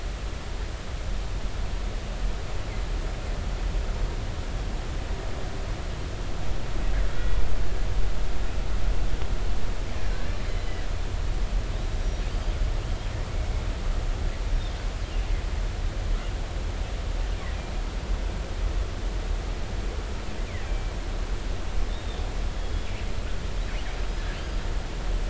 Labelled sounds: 10.1	10.4	killer whale, northern resident, G clan, 1.5 to 1.8 kHz
12.0	12.3	killer whale, northern resident, G clan, GI subclan, call N23i, 5.7 to 5.8 kHz
20.7	20.9	killer whale, northern resident, G clan, 2.3 to 2.4 kHz
21.9	22.2	killer whale, northern resident, G clan, 3.5 to 3.8 kHz

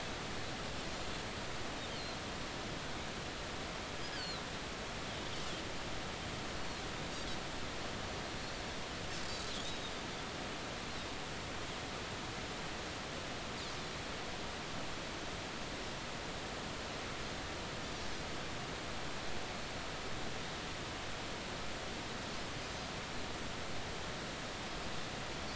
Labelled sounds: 4.1	4.4	Pacific white-sided dolphin, 3.8 to 4.9 kHz
6.6	6.8	Pacific white-sided dolphin, 4.0 to 4.7 kHz
22.6	22.9	Pacific white-sided dolphin, 4.8 to 5.1 kHz

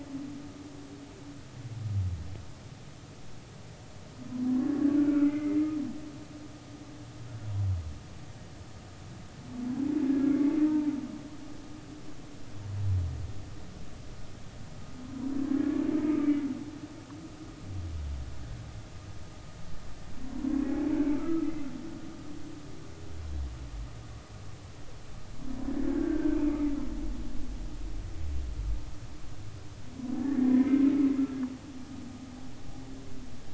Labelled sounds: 5.0	5.7	humpback whale, 1.3 to 2.5 kHz
15.5	15.8	humpback whale, 1.6 to 1.8 kHz
21.1	21.5	humpback whale, 1.2 to 1.4 kHz
26.0	26.4	humpback whale, 1.4 to 1.7 kHz
30.2	30.9	humpback whale, 1.7 to 2.2 kHz

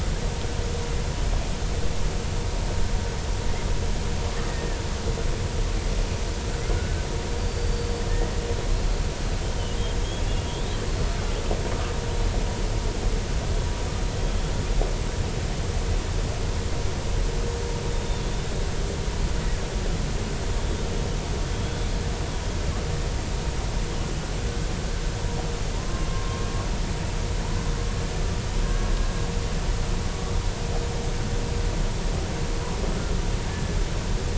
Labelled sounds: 4.5	4.8	killer whale, Bigg's (transient), 1.7 to 1.9 kHz
6.7	8.0	killer whale, Bigg's (transient), 1.4 to 4.8 kHz
8.8	9.8	killer whale, Bigg's (transient), 2.8 to 4.4 kHz
18.2	18.5	killer whale, Bigg's (transient), 3.4 to 3.6 kHz
21.6	21.9	killer whale, Bigg's (transient), 3.3 to 3.5 kHz
25.8	26.4	killer whale, Bigg's (transient), 0.99 to 1.1 kHz
28.6	28.9	killer whale, Bigg's (transient), 1.5 to 1.7 kHz

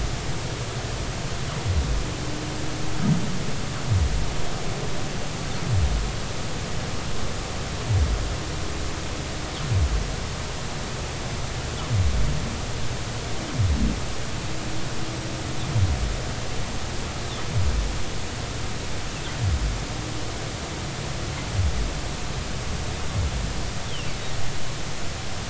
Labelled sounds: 23.9	24.1	humpback whale, 2.6 to 3.5 kHz

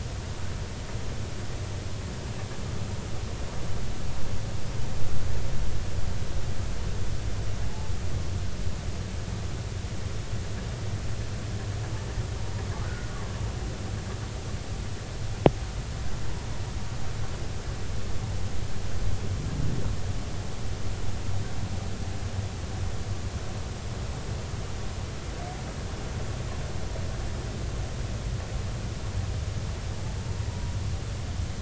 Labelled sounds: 12.8	13.1	humpback whale, 1.4 to 1.6 kHz
30.5	30.7	humpback whale, 0.93 to 0.99 kHz

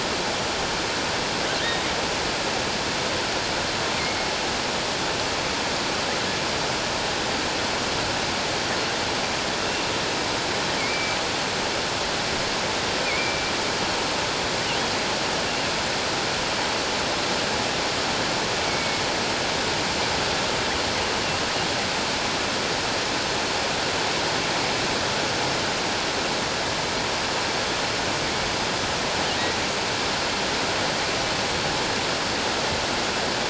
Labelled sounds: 10.8	11.2	killer whale, offshore, 2.1 to 2.6 kHz
13.0	13.4	killer whale, offshore, 2.1 to 2.5 kHz
18.7	19.0	killer whale, offshore, 2.2 to 2.3 kHz

